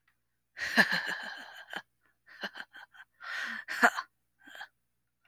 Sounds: Laughter